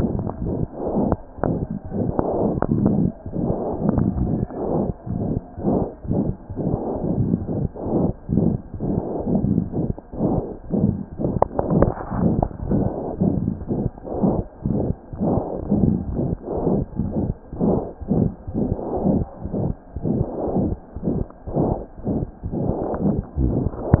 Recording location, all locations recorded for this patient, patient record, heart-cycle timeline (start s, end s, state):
mitral valve (MV)
aortic valve (AV)+mitral valve (MV)
#Age: Infant
#Sex: Female
#Height: 61.0 cm
#Weight: 2.3 kg
#Pregnancy status: False
#Murmur: Present
#Murmur locations: aortic valve (AV)+mitral valve (MV)
#Most audible location: aortic valve (AV)
#Systolic murmur timing: Holosystolic
#Systolic murmur shape: Diamond
#Systolic murmur grading: I/VI
#Systolic murmur pitch: High
#Systolic murmur quality: Harsh
#Diastolic murmur timing: nan
#Diastolic murmur shape: nan
#Diastolic murmur grading: nan
#Diastolic murmur pitch: nan
#Diastolic murmur quality: nan
#Outcome: Abnormal
#Campaign: 2015 screening campaign
0.00	19.43	unannotated
19.43	19.52	S1
19.52	19.66	systole
19.66	19.77	S2
19.77	19.93	diastole
19.93	20.03	S1
20.03	20.17	systole
20.17	20.26	S2
20.26	20.45	diastole
20.45	20.56	S1
20.56	20.68	systole
20.68	20.80	S2
20.80	20.94	diastole
20.94	21.04	S1
21.04	21.19	systole
21.19	21.28	S2
21.28	21.46	diastole
21.46	21.56	S1
21.56	21.70	systole
21.70	21.78	S2
21.78	21.98	diastole
21.98	22.07	S1
22.07	22.20	systole
22.20	22.28	S2
22.28	22.41	diastole
22.41	22.54	S1
22.54	24.00	unannotated